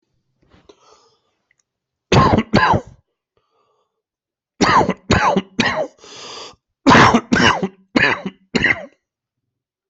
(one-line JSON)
{"expert_labels": [{"quality": "ok", "cough_type": "wet", "dyspnea": false, "wheezing": false, "stridor": false, "choking": false, "congestion": false, "nothing": true, "diagnosis": "lower respiratory tract infection", "severity": "mild"}], "age": 45, "gender": "female", "respiratory_condition": false, "fever_muscle_pain": false, "status": "COVID-19"}